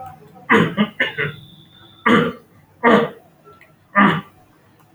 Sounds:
Throat clearing